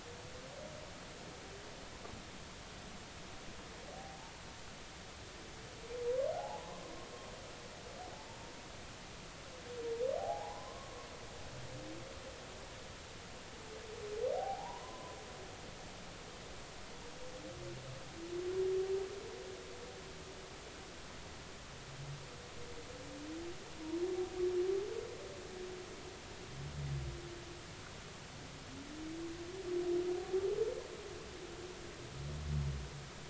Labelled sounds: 4.0	4.3	humpback whale, 0.80 to 0.96 kHz
6.3	6.9	humpback whale, 0.80 to 1.2 kHz
10.2	11.0	humpback whale, 0.80 to 1.2 kHz
14.3	15.2	humpback whale, 0.80 to 1.1 kHz

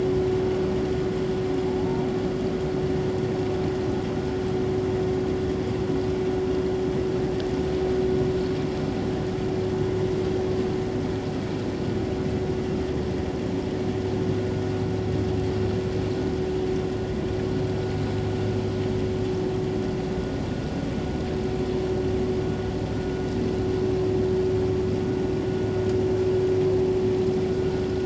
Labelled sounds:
1.8	2.1	humpback whale, 0.78 to 1.0 kHz

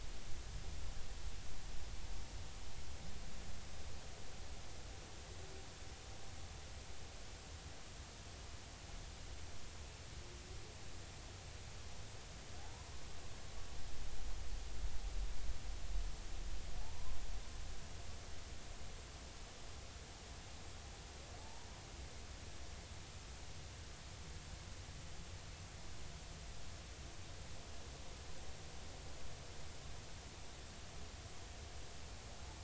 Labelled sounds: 12.6	12.9	humpback whale, 0.80 to 1.1 kHz
16.8	17.2	humpback whale, 0.80 to 1.1 kHz
21.4	21.7	humpback whale, 0.80 to 0.99 kHz

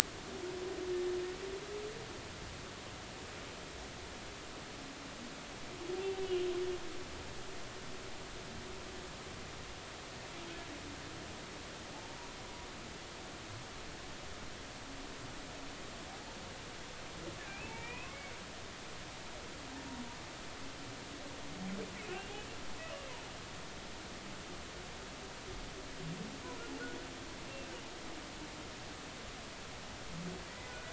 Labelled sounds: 11.9	12.2	humpback whale, 0.80 to 0.96 kHz
17.5	18.2	humpback whale, 0.83 to 2.8 kHz
22.0	22.5	humpback whale, 2.4 to 3.0 kHz
30.5	30.8	humpback whale, 1.9 to 2.0 kHz

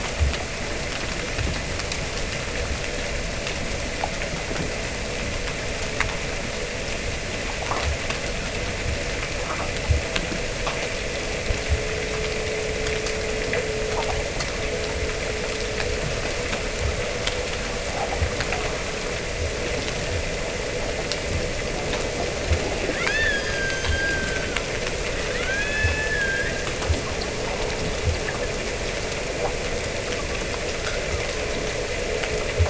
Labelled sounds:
23.0	24.5	killer whale, Bigg's (transient), Gulf of Alaska transient, 1.2 to 6.8 kHz
25.3	26.6	killer whale, Bigg's (transient), Gulf of Alaska transient, 1.1 to 5.4 kHz

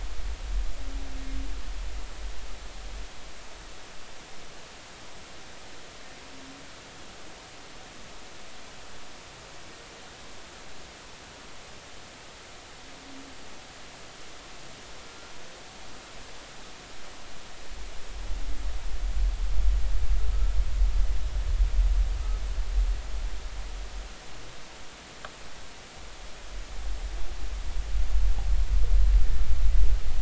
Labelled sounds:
15.0	15.3	humpback whale, 1.3 to 1.4 kHz

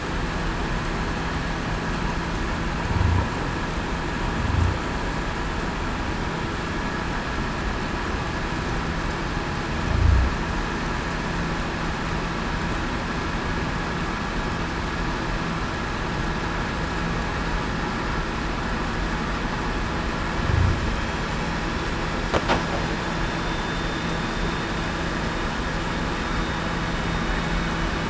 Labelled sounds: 23.2	24.1	vessel noise, 3.5 to 3.6 kHz
24.3	24.7	vessel noise, 3.6 to 3.7 kHz

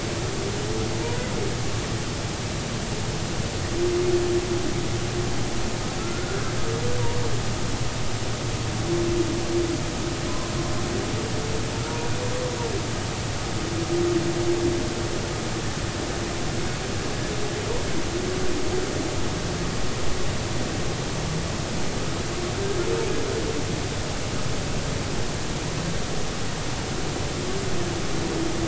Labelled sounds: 6.0	6.4	humpback whale, 1.3 to 1.5 kHz

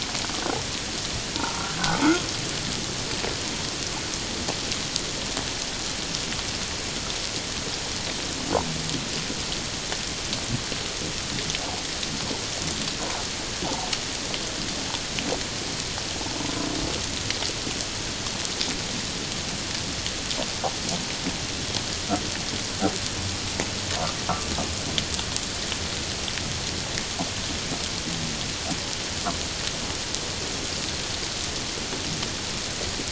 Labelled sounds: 1.4	2.1	humpback whale, 0.78 to 1.7 kHz

